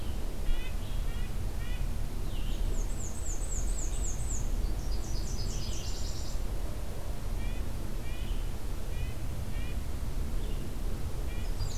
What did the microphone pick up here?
Red-breasted Nuthatch, Red-eyed Vireo, Black-and-white Warbler, Nashville Warbler